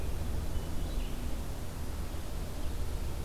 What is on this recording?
Red-eyed Vireo